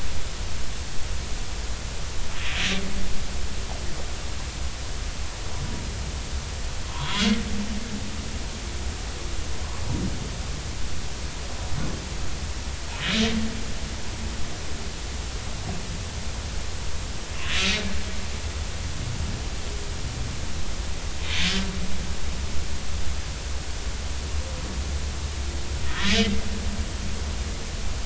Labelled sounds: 6.9	7.3	humpback whale, 0.90 to 4.0 kHz
25.9	26.1	humpback whale, 1.2 to 1.5 kHz

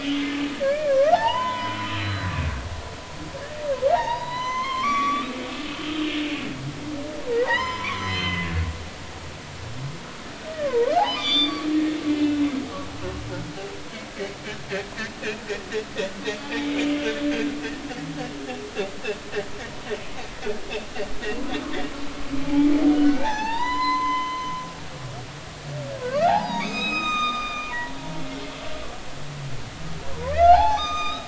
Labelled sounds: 0.6	2.3	humpback whale, 0.80 to 4.1 kHz
3.9	6.1	humpback whale, 0.80 to 6.2 kHz
7.3	8.5	humpback whale, 0.80 to 6.3 kHz
10.5	11.7	humpback whale, 0.80 to 6.0 kHz
12.1	12.5	humpback whale, 2.5 to 2.7 kHz
16.4	16.9	humpback whale, 0.80 to 2.6 kHz
22.4	22.7	humpback whale, 0.80 to 0.93 kHz
23.2	24.6	humpback whale, 0.80 to 6.1 kHz
26.2	28.5	humpback whale, 0.80 to 7.7 kHz
30.1	31.2	humpback whale, 0.80 to 6.2 kHz

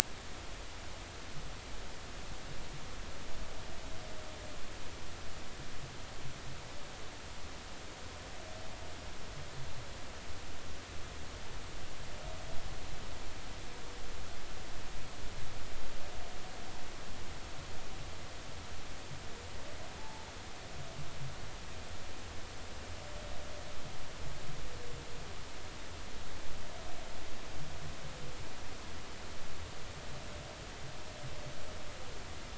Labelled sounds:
20.0	20.3	humpback whale, 0.83 to 0.96 kHz

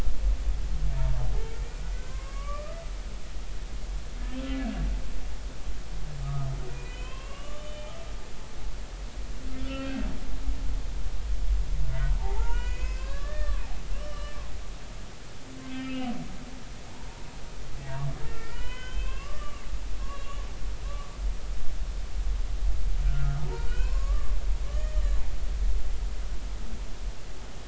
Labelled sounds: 1.6	2.8	humpback whale, 0.99 to 2.5 kHz
6.2	8.0	humpback whale, 0.99 to 3.6 kHz
9.6	10.1	humpback whale, 1.3 to 2.8 kHz
12.2	13.6	humpback whale, 0.80 to 6.7 kHz
13.9	14.4	humpback whale, 1.1 to 3.0 kHz
15.6	16.1	humpback whale, 1.2 to 2.9 kHz
16.9	17.3	humpback whale, 0.86 to 1.0 kHz
18.3	19.6	humpback whale, 0.90 to 6.7 kHz
20.0	20.4	humpback whale, 1.0 to 2.9 kHz
23.1	24.3	humpback whale, 0.83 to 2.8 kHz
24.7	25.2	humpback whale, 1.7 to 4.2 kHz

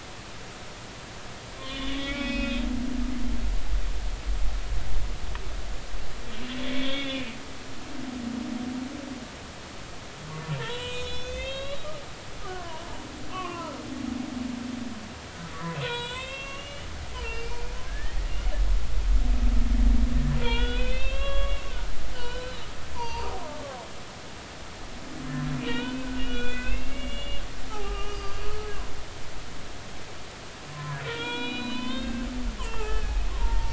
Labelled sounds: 1.6	2.7	humpback whale, 1.3 to 5.4 kHz
6.7	7.3	humpback whale, 2.1 to 3.7 kHz
10.6	11.9	humpback whale, 0.86 to 6.7 kHz
12.4	12.8	humpback whale, 0.90 to 1.3 kHz
13.3	13.8	humpback whale, 0.90 to 3.1 kHz
15.5	16.9	humpback whale, 0.86 to 7.6 kHz
17.1	18.2	humpback whale, 1.5 to 5.3 kHz
20.4	22.6	humpback whale, 0.86 to 4.1 kHz
22.9	23.6	humpback whale, 0.86 to 6.2 kHz
25.5	28.4	humpback whale, 0.80 to 3.7 kHz
30.7	33.7	humpback whale, 0.80 to 4.3 kHz

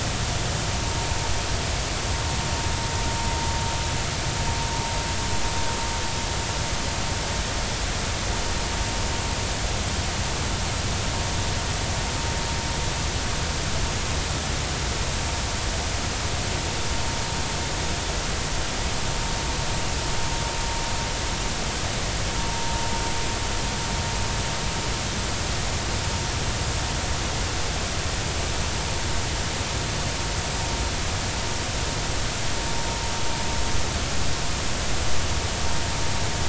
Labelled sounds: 22.5	22.8	vessel noise, 0.90 to 0.96 kHz

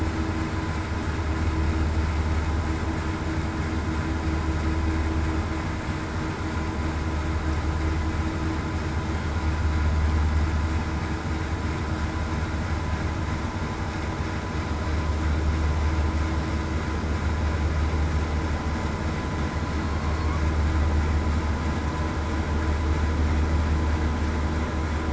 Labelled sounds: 20.0	20.4	killer whale, southern resident, 1.1 to 1.2 kHz

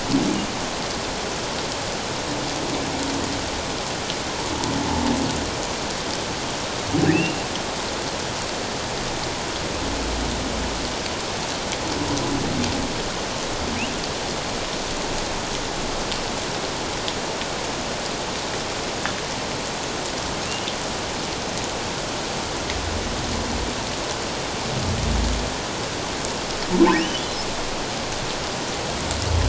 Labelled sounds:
7.1	7.4	humpback whale, 2.5 to 2.8 kHz
20.4	20.7	humpback whale, 2.5 to 3.0 kHz

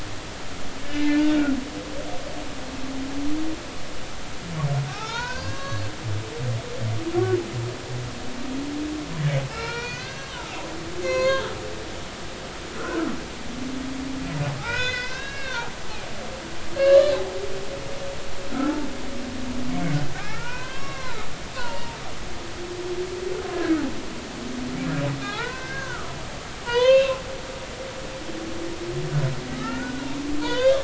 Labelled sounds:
0.9	1.5	humpback whale, 1.3 to 2.8 kHz
4.9	5.8	humpback whale, 0.80 to 4.9 kHz
7.1	7.4	humpback whale, 1.3 to 1.6 kHz
9.5	11.5	humpback whale, 0.86 to 7.0 kHz
12.7	13.1	humpback whale, 1.2 to 1.7 kHz
14.6	15.7	humpback whale, 0.80 to 5.3 kHz
16.8	17.2	humpback whale, 1.1 to 4.2 kHz
18.5	18.8	humpback whale, 1.2 to 1.6 kHz
20.1	21.3	humpback whale, 0.90 to 4.3 kHz
21.5	22.0	humpback whale, 0.86 to 3.0 kHz
23.5	23.8	humpback whale, 1.4 to 1.8 kHz
25.2	27.2	humpback whale, 0.80 to 4.3 kHz
29.5	30.8	humpback whale, 0.86 to 3.8 kHz

